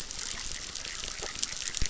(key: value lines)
label: biophony, chorus
recorder: SoundTrap 600